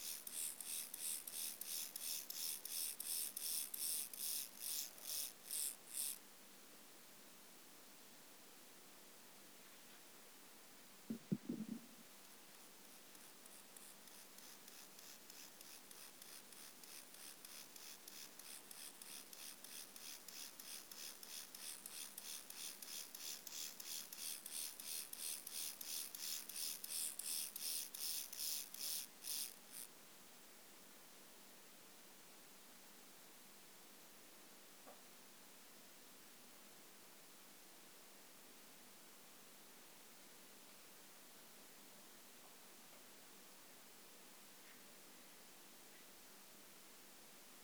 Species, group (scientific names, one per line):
Chorthippus mollis
Orthoptera